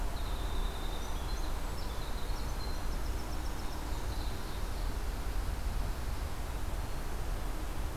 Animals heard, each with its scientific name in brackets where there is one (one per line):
Ovenbird (Seiurus aurocapilla)
Winter Wren (Troglodytes hiemalis)